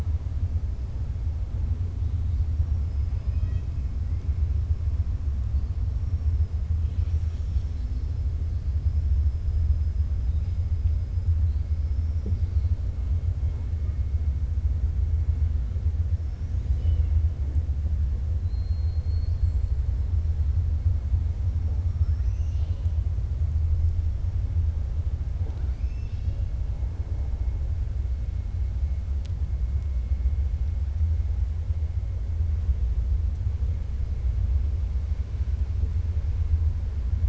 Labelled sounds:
2.5	3.7	killer whale, 1.3 to 6.4 kHz
16.2	17.1	killer whale, 1.5 to 7.2 kHz
18.4	19.5	killer whale, 3.8 to 5.6 kHz
21.8	22.9	killer whale, 1.3 to 6.4 kHz

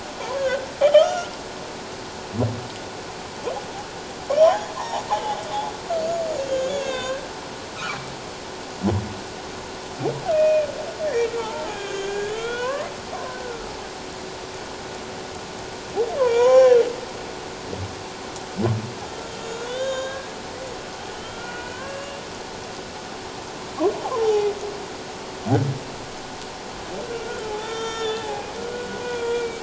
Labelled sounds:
0.2	1.3	humpback whale, 0.88 to 5.8 kHz
4.4	5.0	humpback whale, 0.78 to 3.4 kHz
6.5	7.2	humpback whale, 0.97 to 6.9 kHz
7.8	8.1	humpback whale, 2.2 to 2.7 kHz
10.3	10.7	humpback whale, 2.3 to 2.6 kHz
11.3	12.9	humpback whale, 0.81 to 3.5 kHz
13.3	13.7	humpback whale, 1.2 to 1.6 kHz
16.2	16.8	humpback whale, 0.78 to 6.9 kHz
19.2	20.3	humpback whale, 1.0 to 7.1 kHz
21.1	22.2	humpback whale, 1.3 to 3.3 kHz
24.0	24.5	humpback whale, 0.78 to 1.1 kHz
27.1	29.6	humpback whale, 0.78 to 6.8 kHz

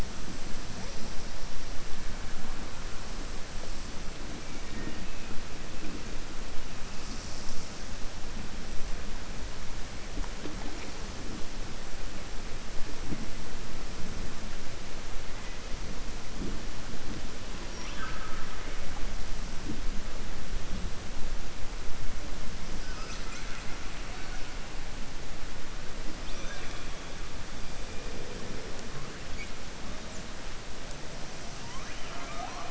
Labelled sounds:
17.7	18.8	killer whale, southern resident, 1.0 to 3.6 kHz

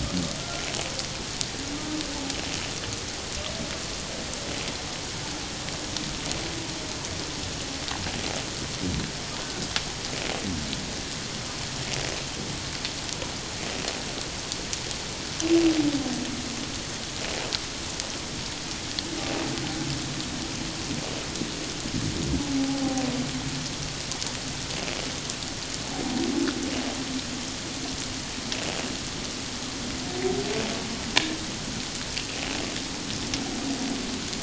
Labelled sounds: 0.4	0.7	humpback whale, 1.3 to 1.4 kHz
22.6	22.8	humpback whale, 0.78 to 0.88 kHz

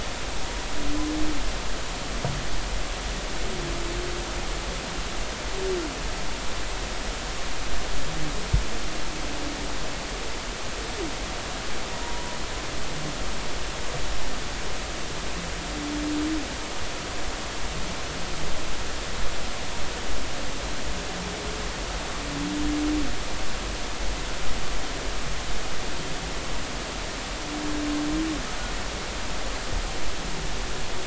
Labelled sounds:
11.9	12.3	humpback whale, 0.90 to 0.99 kHz

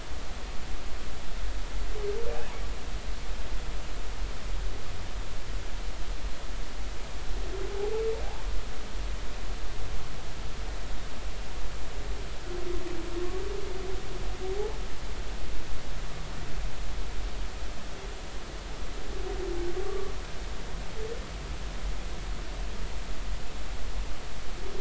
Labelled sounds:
19.8	20.1	humpback whale, 1.1 to 1.2 kHz

